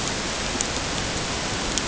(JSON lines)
{"label": "ambient", "recorder": "HydroMoth"}